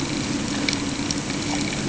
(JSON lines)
{"label": "anthrophony, boat engine", "recorder": "HydroMoth"}